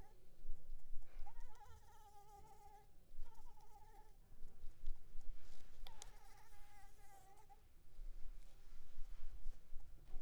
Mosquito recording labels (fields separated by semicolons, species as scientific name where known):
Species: Anopheles arabiensis; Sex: female; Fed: unfed; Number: one; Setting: cup